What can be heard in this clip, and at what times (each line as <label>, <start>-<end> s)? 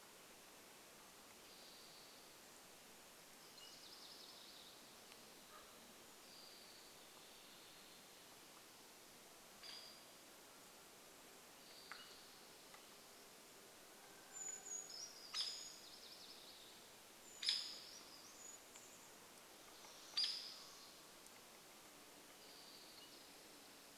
unidentified sound, 0-2 s
Spotted Towhee song, 2-4 s
Townsend's Solitaire call, 2-4 s
MacGillivray's Warbler song, 2-6 s
Common Raven call, 4-6 s
unidentified sound, 6-8 s
Hairy Woodpecker call, 8-10 s
Mountain Quail call, 10-12 s
unidentified sound, 10-14 s
rooster crow, 14-16 s
Hairy Woodpecker call, 14-18 s
MacGillivray's Warbler song, 14-18 s
Brown Creeper song, 14-20 s
Hairy Woodpecker call, 20-22 s
Spotted Towhee song, 22-24 s
Townsend's Solitaire call, 22-24 s